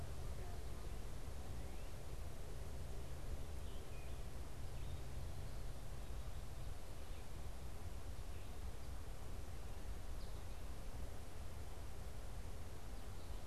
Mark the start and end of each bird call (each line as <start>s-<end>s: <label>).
3.3s-4.3s: Scarlet Tanager (Piranga olivacea)